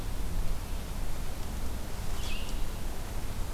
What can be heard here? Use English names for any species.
Red-eyed Vireo